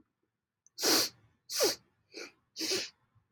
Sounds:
Sniff